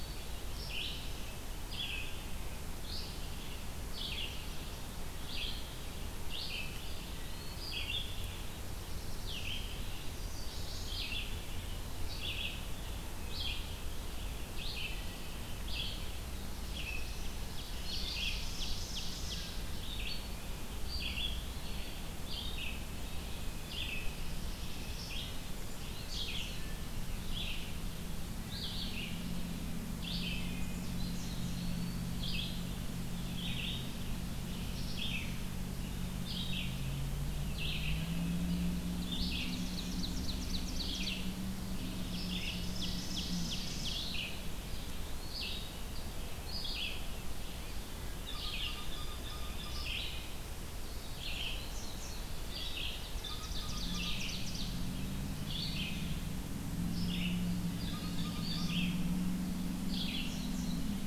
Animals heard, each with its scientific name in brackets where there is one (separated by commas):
Indigo Bunting (Passerina cyanea), Ovenbird (Seiurus aurocapilla), Black-throated Blue Warbler (Setophaga caerulescens), Eastern Wood-Pewee (Contopus virens), Red-eyed Vireo (Vireo olivaceus), Chestnut-sided Warbler (Setophaga pensylvanica), Blue Jay (Cyanocitta cristata)